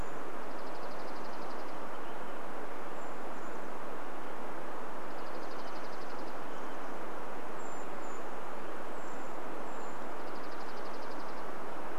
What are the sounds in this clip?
Dark-eyed Junco song, Brown Creeper call